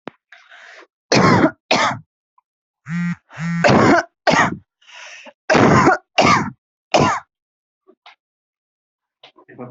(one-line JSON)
{"expert_labels": [{"quality": "poor", "cough_type": "dry", "dyspnea": false, "wheezing": false, "stridor": false, "choking": false, "congestion": false, "nothing": true, "diagnosis": "COVID-19", "severity": "mild"}], "age": 31, "gender": "female", "respiratory_condition": true, "fever_muscle_pain": true, "status": "COVID-19"}